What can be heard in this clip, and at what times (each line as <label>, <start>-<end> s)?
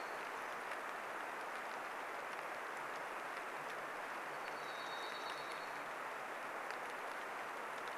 Dark-eyed Junco song, 0-2 s
rain, 0-8 s
Dark-eyed Junco song, 4-6 s
Varied Thrush song, 4-6 s